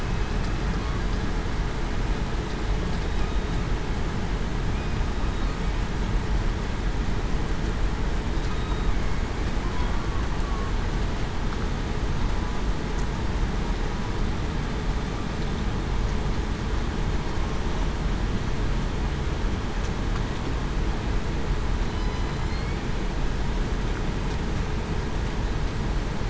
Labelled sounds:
0.0	0.3	killer whale, southern resident, 2.5 to 2.6 kHz
8.5	8.9	killer whale, southern resident, 3.7 to 3.8 kHz
21.9	22.5	killer whale, southern resident, 4.0 to 4.1 kHz

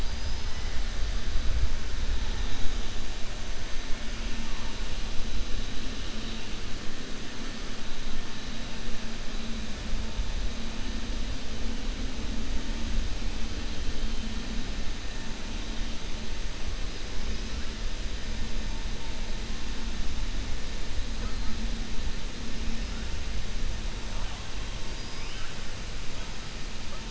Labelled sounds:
0.0	0.6	killer whale, 4.2 to 5.3 kHz

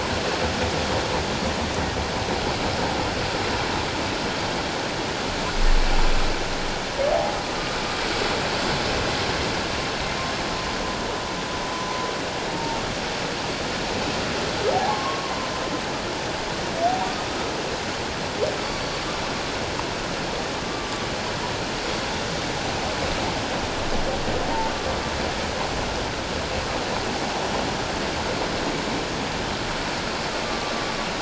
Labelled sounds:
7.1	7.4	humpback whale, 0.78 to 0.94 kHz
11.7	12.0	humpback whale, 6.0 to 6.1 kHz
12.5	12.8	humpback whale, 0.88 to 0.97 kHz
14.7	15.5	humpback whale, 0.78 to 1.2 kHz
30.4	30.7	humpback whale, 1.1 to 1.2 kHz

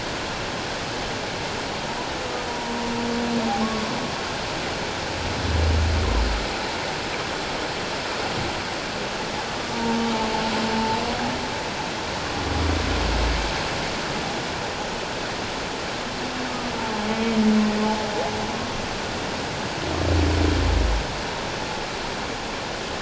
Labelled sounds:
2.5	2.7	humpback whale, 0.91 to 1.0 kHz
9.7	10.0	humpback whale, 0.84 to 0.97 kHz

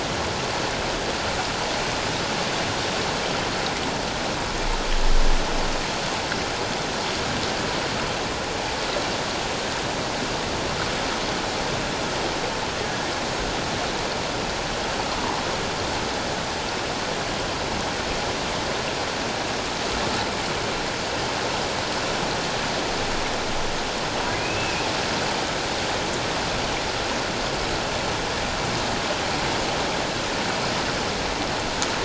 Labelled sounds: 24.4	24.9	humpback whale, 2.3 to 2.7 kHz

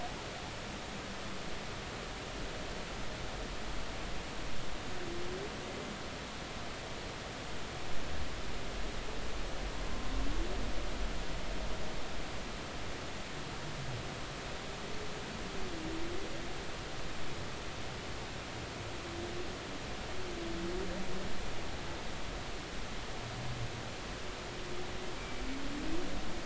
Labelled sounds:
9.8	10.1	humpback whale, 1.0 to 1.1 kHz
25.2	25.4	humpback whale, 2.3 to 2.4 kHz

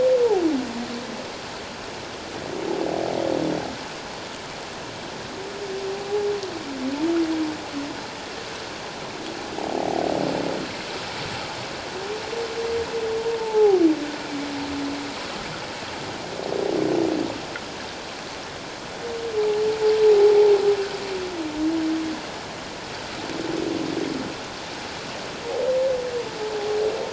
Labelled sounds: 9.6	10.0	humpback whale, 0.78 to 0.97 kHz
13.4	13.8	humpback whale, 0.78 to 0.94 kHz
20.1	20.3	humpback whale, 0.78 to 0.88 kHz

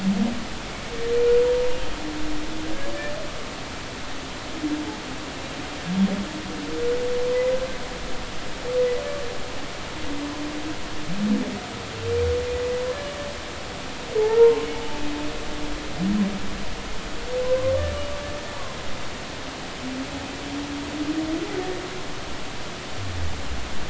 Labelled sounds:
1.4	1.7	humpback whale, 0.90 to 0.99 kHz
14.2	14.7	humpback whale, 0.80 to 1.1 kHz

